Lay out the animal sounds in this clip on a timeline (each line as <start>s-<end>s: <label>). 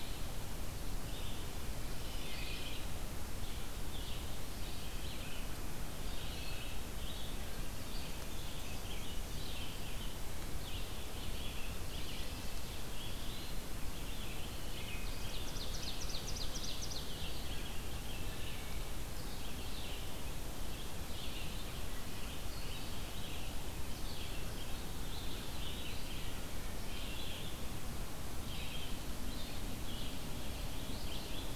0.0s-15.4s: Red-eyed Vireo (Vireo olivaceus)
2.1s-3.0s: Wood Thrush (Hylocichla mustelina)
5.5s-6.8s: Eastern Wood-Pewee (Contopus virens)
13.0s-13.7s: Eastern Wood-Pewee (Contopus virens)
14.8s-17.2s: Ovenbird (Seiurus aurocapilla)
17.0s-31.6s: Red-eyed Vireo (Vireo olivaceus)
18.3s-19.2s: Wood Thrush (Hylocichla mustelina)
25.2s-26.3s: Eastern Wood-Pewee (Contopus virens)
26.2s-27.1s: Wood Thrush (Hylocichla mustelina)